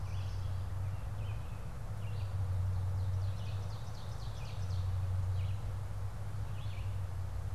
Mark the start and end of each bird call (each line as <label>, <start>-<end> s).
Yellow Warbler (Setophaga petechia), 0.0-0.9 s
Red-eyed Vireo (Vireo olivaceus), 0.0-7.5 s
Ovenbird (Seiurus aurocapilla), 2.6-5.1 s